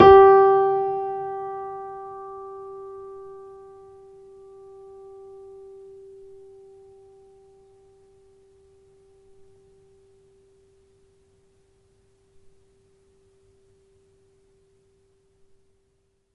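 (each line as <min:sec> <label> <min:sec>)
0:00.1 A high-pitched piano note is sustained. 0:03.5
0:00.1 A high-pitched piano note. 0:03.5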